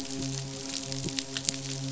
{"label": "biophony, midshipman", "recorder": "SoundTrap 500"}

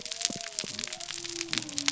{"label": "biophony", "recorder": "SoundTrap 300"}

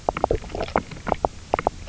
{"label": "biophony, knock croak", "recorder": "SoundTrap 300"}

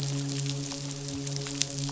{"label": "biophony, midshipman", "recorder": "SoundTrap 500"}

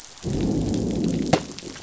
{"label": "biophony, growl", "recorder": "SoundTrap 500"}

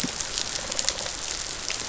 {"label": "biophony", "recorder": "SoundTrap 500"}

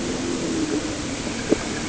{"label": "anthrophony, boat engine", "recorder": "HydroMoth"}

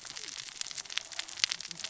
{"label": "biophony, cascading saw", "recorder": "SoundTrap 600 or HydroMoth"}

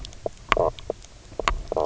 {"label": "biophony, knock croak", "recorder": "SoundTrap 300"}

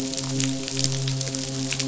{"label": "biophony, midshipman", "recorder": "SoundTrap 500"}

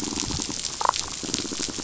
{"label": "biophony, damselfish", "recorder": "SoundTrap 500"}
{"label": "biophony", "recorder": "SoundTrap 500"}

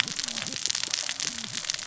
{"label": "biophony, cascading saw", "recorder": "SoundTrap 600 or HydroMoth"}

